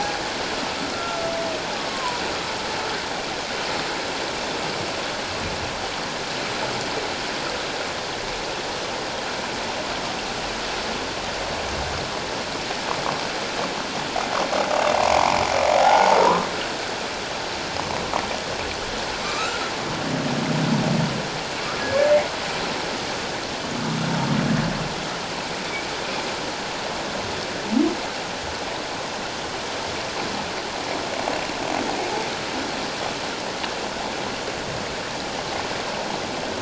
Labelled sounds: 0.9	2.2	humpback whale, 0.94 to 1.4 kHz
15.7	16.8	humpback whale, 0.78 to 1.7 kHz
19.2	19.6	humpback whale, 1.1 to 2.7 kHz

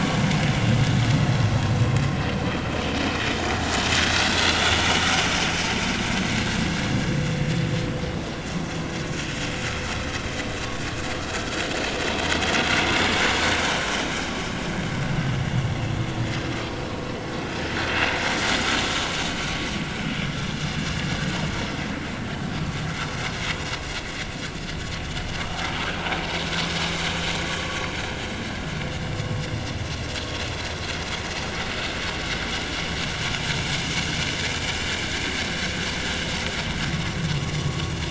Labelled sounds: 4.2	4.6	vessel noise, 3.3 to 3.5 kHz
7.4	7.6	vessel noise, 1.7 to 1.9 kHz
12.8	13.1	vessel noise, 3.5 to 3.7 kHz
25.1	25.3	vessel noise, 2.9 to 3.1 kHz
29.0	29.3	vessel noise, 4.8 to 5.1 kHz

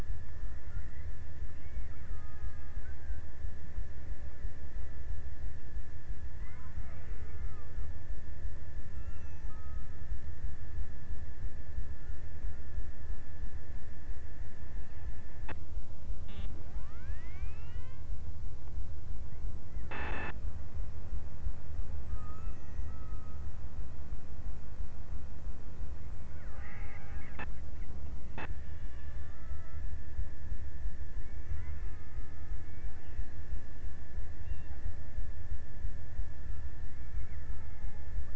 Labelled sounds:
1.2	3.7	killer whale, Bigg's (transient), 0.37 to 2.1 kHz
5.7	8.1	killer whale, Bigg's (transient), 0.30 to 2.2 kHz
8.6	9.9	killer whale, Bigg's (transient), 0.39 to 1.9 kHz
21.8	23.9	killer whale, Bigg's (transient), 0.81 to 2.6 kHz
26.0	28.0	killer whale, Bigg's (transient), 0.67 to 2.8 kHz
28.4	30.2	killer whale, Bigg's (transient), 0.60 to 3.4 kHz
31.0	32.6	killer whale, Bigg's (transient), 0.70 to 2.2 kHz
36.4	38.3	killer whale, Bigg's (transient), 0.42 to 2.2 kHz

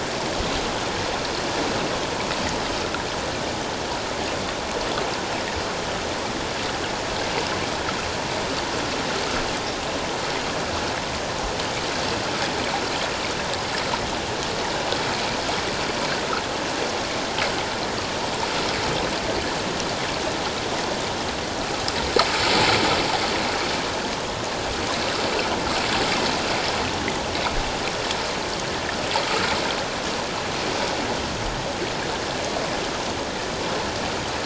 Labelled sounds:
29.3	29.5	water noise, 1.2 to 1.5 kHz

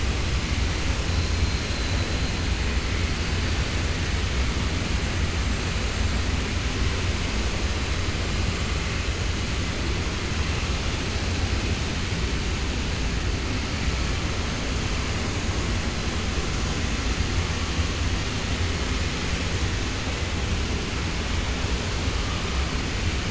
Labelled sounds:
1.4	2.0	killer whale, 3.2 to 4.2 kHz

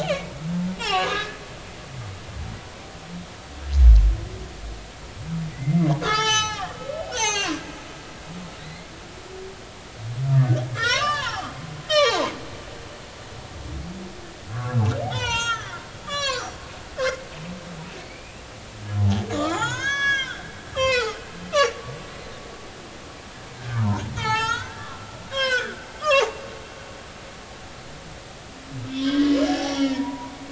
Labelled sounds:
0.0	1.4	humpback whale, 0.80 to 3.5 kHz
5.5	7.7	humpback whale, 0.80 to 7.9 kHz
8.6	8.9	humpback whale, 1.8 to 2.2 kHz
10.7	11.5	humpback whale, 0.80 to 7.2 kHz
11.9	12.3	humpback whale, 0.80 to 6.3 kHz
14.5	14.8	humpback whale, 0.99 to 1.2 kHz
15.0	16.6	humpback whale, 0.80 to 7.6 kHz
17.0	17.3	humpback whale, 2.0 to 2.2 kHz
18.0	18.4	humpback whale, 2.2 to 2.8 kHz
19.3	20.4	humpback whale, 0.80 to 7.9 kHz
20.7	21.2	humpback whale, 0.80 to 5.4 kHz
21.5	21.8	humpback whale, 2.5 to 3.0 kHz
23.5	26.6	humpback whale, 0.80 to 8.0 kHz
28.9	30.3	humpback whale, 0.80 to 6.0 kHz

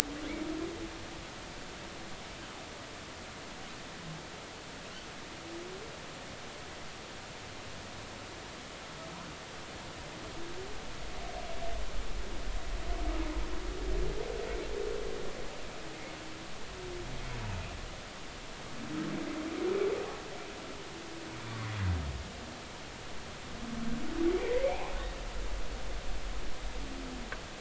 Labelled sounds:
24.4	24.9	humpback whale, 1.8 to 2.6 kHz

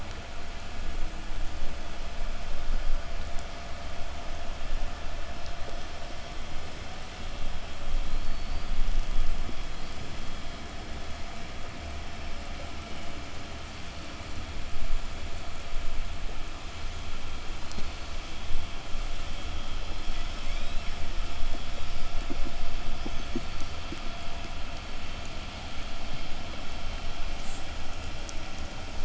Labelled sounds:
7.7	12.6	killer whale, southern resident, 2.6 to 6.3 kHz
17.2	18.7	killer whale, southern resident, 3.9 to 5.2 kHz
19.7	21.3	killer whale, southern resident, 1.3 to 8.0 kHz

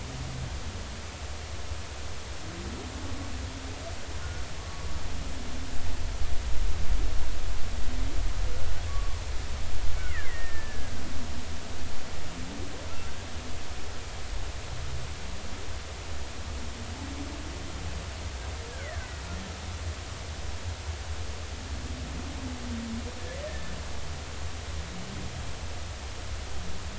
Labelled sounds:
4.6	4.9	humpback whale, 1.1 to 1.2 kHz
8.9	9.2	humpback whale, 1.1 to 1.2 kHz
10.1	11.0	killer whale, Bigg's (transient), 1.5 to 2.3 kHz
18.8	19.2	killer whale, Bigg's (transient), 1.4 to 2.3 kHz
23.5	23.8	killer whale, Bigg's (transient), 1.7 to 1.9 kHz

